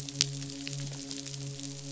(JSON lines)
{"label": "biophony, midshipman", "recorder": "SoundTrap 500"}